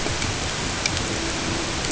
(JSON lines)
{"label": "ambient", "recorder": "HydroMoth"}